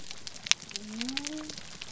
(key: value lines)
label: biophony
recorder: SoundTrap 300